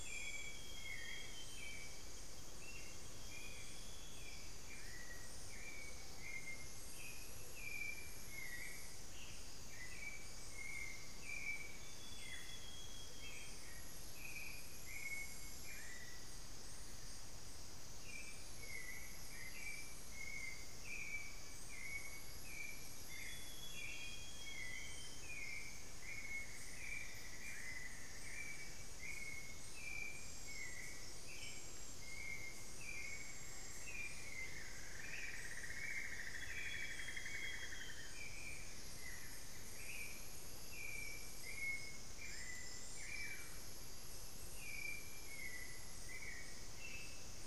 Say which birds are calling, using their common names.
Amazonian Grosbeak, Hauxwell's Thrush, Royal Flycatcher, unidentified bird, Amazonian Motmot, Cinnamon-throated Woodcreeper, Solitary Black Cacique